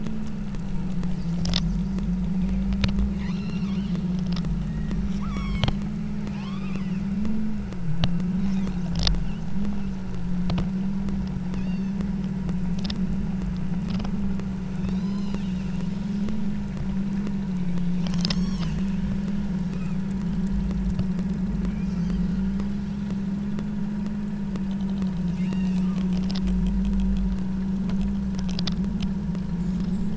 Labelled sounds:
2.4	2.8	killer whale, southern Alaska resident, 1.8 to 3.8 kHz
3.1	4.0	killer whale, southern Alaska resident, 0.84 to 5.7 kHz
4.5	5.7	killer whale, southern Alaska resident, 0.87 to 8.0 kHz
6.2	7.1	killer whale, southern Alaska resident, 0.55 to 6.2 kHz
8.4	8.9	killer whale, southern Alaska resident, 0.66 to 8.0 kHz
11.5	12.1	killer whale, southern Alaska resident, 2.3 to 6.7 kHz
14.8	15.6	killer whale, southern Alaska resident, 2.3 to 7.5 kHz
19.6	20.1	killer whale, southern Alaska resident, 1.1 to 2.7 kHz
21.7	22.3	killer whale, southern Alaska resident, 1.9 to 6.4 kHz
25.3	26.1	killer whale, southern Alaska resident, 1.7 to 5.8 kHz

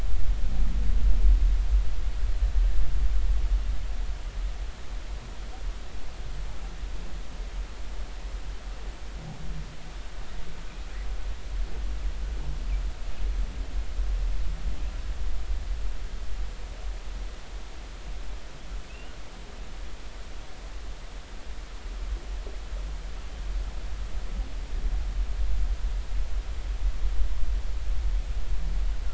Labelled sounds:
18.9	19.1	humpback whale, 2.5 to 3.0 kHz

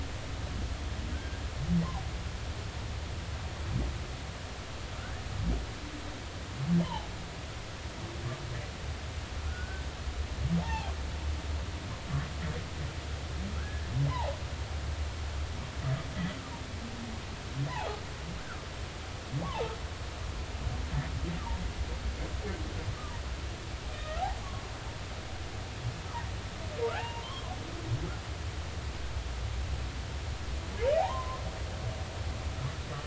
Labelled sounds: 1.1	1.4	humpback whale, 1.4 to 1.7 kHz
5.0	5.2	humpback whale, 1.3 to 1.9 kHz
9.5	9.9	humpback whale, 1.4 to 1.6 kHz
10.6	10.9	humpback whale, 0.80 to 0.99 kHz
13.6	14.4	humpback whale, 0.80 to 1.8 kHz
17.7	18.0	humpback whale, 0.80 to 1.1 kHz
19.4	19.7	humpback whale, 0.80 to 1.2 kHz
23.9	24.2	humpback whale, 1.2 to 2.5 kHz
27.0	27.5	humpback whale, 0.80 to 3.3 kHz
31.0	31.4	humpback whale, 0.80 to 1.1 kHz

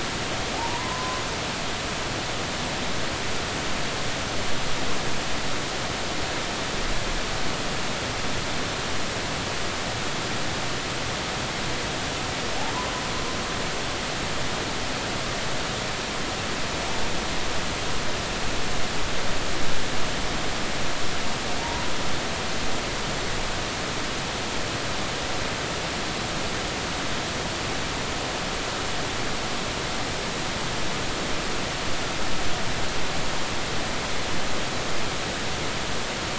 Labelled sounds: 0.5	1.2	humpback whale, 0.80 to 1.1 kHz

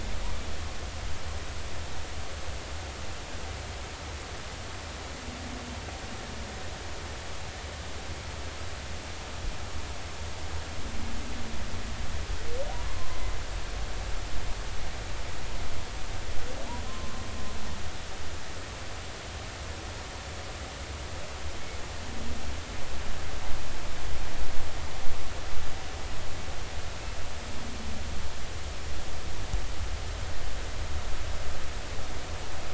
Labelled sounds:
12.9	13.3	humpback whale, 0.96 to 1.2 kHz
16.9	17.1	humpback whale, 0.99 to 1.1 kHz

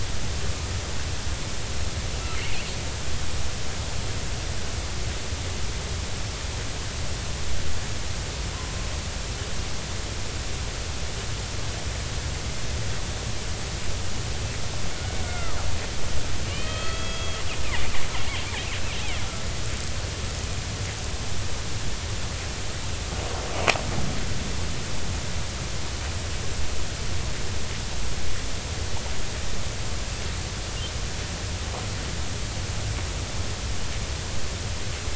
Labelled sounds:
2.4	2.7	killer whale, Bigg's (transient), 2.4 to 3.1 kHz
15.2	15.6	killer whale, Bigg's (transient), 1.0 to 2.2 kHz
16.5	17.9	killer whale, Bigg's (transient), 1.2 to 3.4 kHz

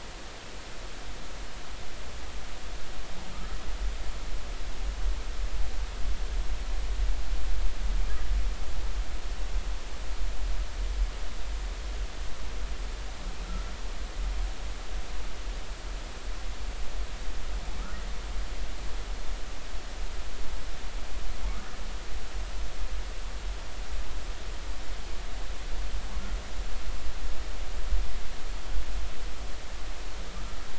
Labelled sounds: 3.3	3.6	humpback whale, 1.2 to 1.4 kHz

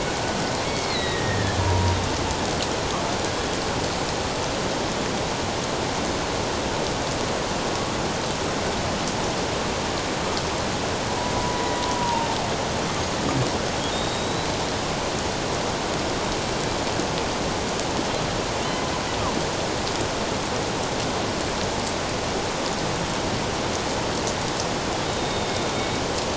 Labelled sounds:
1.6	2.0	killer whale, Bigg's (transient), 0.91 to 1.0 kHz
3.3	3.6	killer whale, Bigg's (transient), 3.3 to 3.4 kHz
11.3	11.6	killer whale, Bigg's (transient), 0.94 to 1.0 kHz
12.0	12.3	killer whale, Bigg's (transient), 0.88 to 1.0 kHz
13.9	14.5	killer whale, Bigg's (transient), 3.6 to 7.6 kHz
25.0	25.7	killer whale, Bigg's (transient), 3.6 to 3.8 kHz

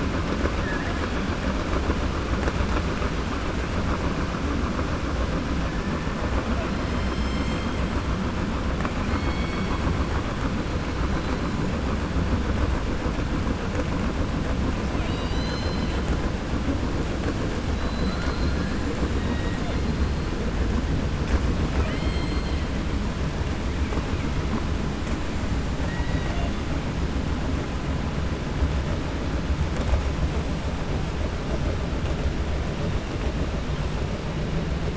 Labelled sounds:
9.0	9.8	killer whale, 1.1 to 4.5 kHz
14.9	16.0	killer whale, 2.0 to 6.2 kHz
17.7	18.6	killer whale, 3.5 to 5.0 kHz
21.6	22.6	killer whale, 0.39 to 5.0 kHz
25.8	26.5	killer whale, 0.66 to 4.8 kHz

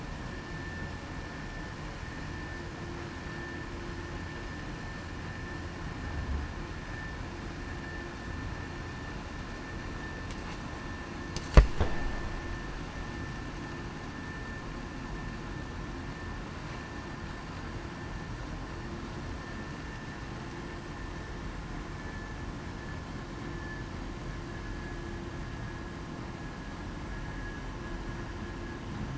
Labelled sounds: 21.9	22.4	vessel noise, 1.7 to 1.8 kHz

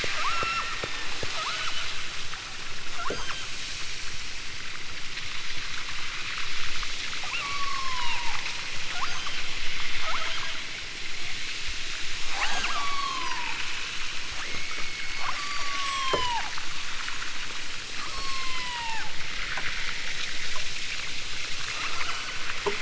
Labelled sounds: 0.2	1.8	killer whale, southern Alaska resident, 0.47 to 7.4 kHz
2.9	3.5	killer whale, southern Alaska resident, 0.73 to 6.6 kHz
7.3	8.2	killer whale, southern Alaska resident, 0.50 to 6.0 kHz
8.9	9.5	killer whale, southern Alaska resident, 0.55 to 6.7 kHz
9.9	10.6	killer whale, southern Alaska resident, 0.18 to 5.2 kHz
12.3	13.6	killer whale, southern Alaska resident, 0.23 to 8.0 kHz
14.3	16.5	killer whale, southern Alaska resident, 0.46 to 8.0 kHz
18.0	19.1	killer whale, southern Alaska resident, 0.50 to 6.7 kHz
21.7	22.3	killer whale, southern Alaska resident, 1.2 to 5.1 kHz

